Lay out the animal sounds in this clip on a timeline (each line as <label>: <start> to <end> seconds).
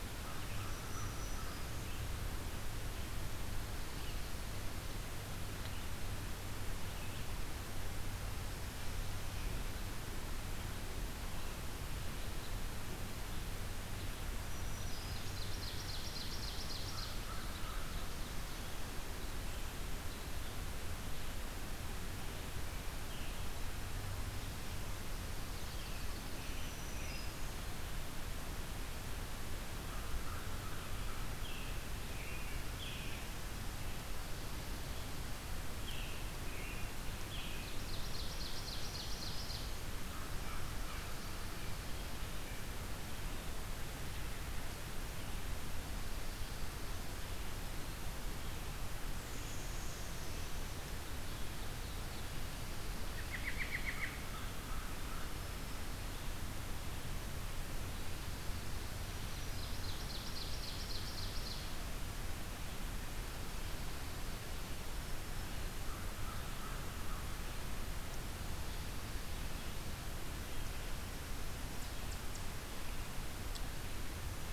American Crow (Corvus brachyrhynchos): 0.0 to 2.0 seconds
Black-throated Green Warbler (Setophaga virens): 0.5 to 2.1 seconds
Black-throated Green Warbler (Setophaga virens): 14.2 to 15.6 seconds
Ovenbird (Seiurus aurocapilla): 15.1 to 17.6 seconds
American Crow (Corvus brachyrhynchos): 16.4 to 18.3 seconds
American Robin (Turdus migratorius): 25.7 to 27.4 seconds
Black-throated Green Warbler (Setophaga virens): 26.2 to 28.1 seconds
American Crow (Corvus brachyrhynchos): 29.6 to 31.7 seconds
American Robin (Turdus migratorius): 31.0 to 33.5 seconds
American Robin (Turdus migratorius): 35.8 to 37.8 seconds
Ovenbird (Seiurus aurocapilla): 37.5 to 39.9 seconds
American Crow (Corvus brachyrhynchos): 39.9 to 41.8 seconds
American Robin (Turdus migratorius): 52.9 to 54.2 seconds
American Crow (Corvus brachyrhynchos): 54.2 to 55.8 seconds
Black-throated Green Warbler (Setophaga virens): 58.9 to 60.1 seconds
Ovenbird (Seiurus aurocapilla): 59.3 to 62.0 seconds
American Crow (Corvus brachyrhynchos): 65.6 to 67.7 seconds